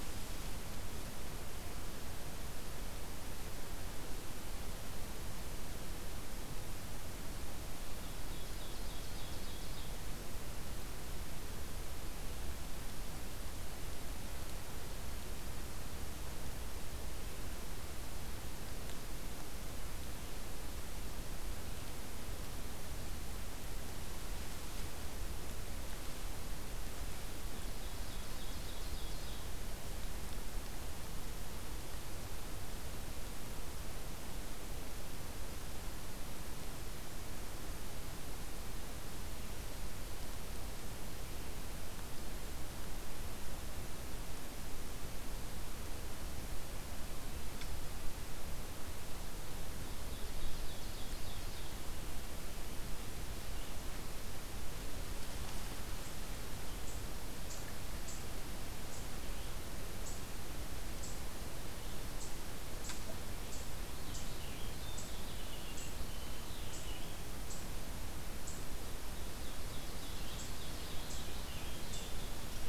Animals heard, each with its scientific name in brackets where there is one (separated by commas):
Ovenbird (Seiurus aurocapilla), Purple Finch (Haemorhous purpureus)